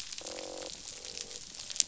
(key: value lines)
label: biophony, croak
recorder: SoundTrap 500